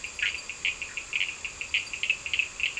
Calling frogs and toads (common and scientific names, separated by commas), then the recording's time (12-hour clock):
Bischoff's tree frog (Boana bischoffi), Cochran's lime tree frog (Sphaenorhynchus surdus)
10:15pm